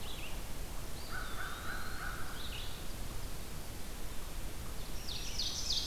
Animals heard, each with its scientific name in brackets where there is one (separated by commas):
American Crow (Corvus brachyrhynchos), Black-throated Green Warbler (Setophaga virens), Eastern Wood-Pewee (Contopus virens), Ovenbird (Seiurus aurocapilla), Red-eyed Vireo (Vireo olivaceus)